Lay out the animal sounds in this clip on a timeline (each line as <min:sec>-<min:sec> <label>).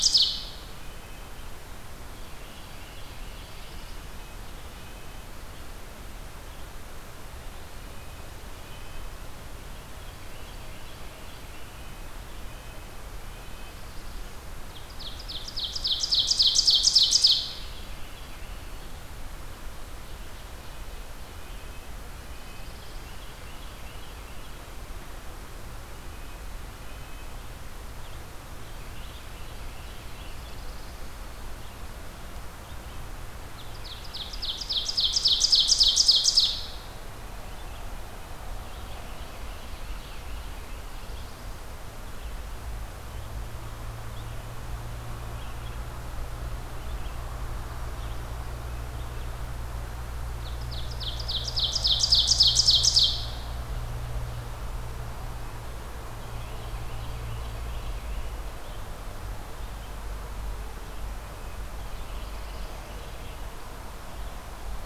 0:00.0-0:00.8 Ovenbird (Seiurus aurocapilla)
0:00.7-0:01.4 Red-breasted Nuthatch (Sitta canadensis)
0:02.2-0:03.9 Carolina Wren (Thryothorus ludovicianus)
0:02.6-0:04.0 Black-throated Blue Warbler (Setophaga caerulescens)
0:04.0-0:05.3 Red-breasted Nuthatch (Sitta canadensis)
0:07.7-0:09.2 Red-breasted Nuthatch (Sitta canadensis)
0:10.0-0:12.0 Carolina Wren (Thryothorus ludovicianus)
0:12.3-0:13.8 Red-breasted Nuthatch (Sitta canadensis)
0:14.6-0:17.7 Ovenbird (Seiurus aurocapilla)
0:17.1-0:18.9 Carolina Wren (Thryothorus ludovicianus)
0:20.8-0:23.0 Red-breasted Nuthatch (Sitta canadensis)
0:22.1-0:23.4 Black-throated Blue Warbler (Setophaga caerulescens)
0:22.9-0:24.6 Carolina Wren (Thryothorus ludovicianus)
0:26.0-0:27.5 Red-breasted Nuthatch (Sitta canadensis)
0:28.4-0:30.5 Carolina Wren (Thryothorus ludovicianus)
0:28.7-0:30.4 Red-breasted Nuthatch (Sitta canadensis)
0:29.8-0:31.1 Black-throated Blue Warbler (Setophaga caerulescens)
0:33.3-0:36.8 Ovenbird (Seiurus aurocapilla)
0:38.5-0:40.4 Carolina Wren (Thryothorus ludovicianus)
0:40.5-0:41.5 Black-throated Blue Warbler (Setophaga caerulescens)
0:42.0-1:04.9 Red-eyed Vireo (Vireo olivaceus)
0:50.4-0:53.5 Ovenbird (Seiurus aurocapilla)
0:56.1-0:58.3 Carolina Wren (Thryothorus ludovicianus)
1:01.3-1:02.9 Black-throated Blue Warbler (Setophaga caerulescens)